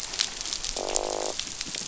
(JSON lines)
{"label": "biophony, croak", "recorder": "SoundTrap 500"}